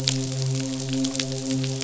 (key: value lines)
label: biophony, midshipman
recorder: SoundTrap 500